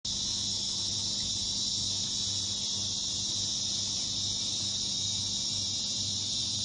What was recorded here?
Psaltoda plaga, a cicada